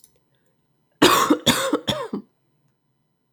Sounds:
Cough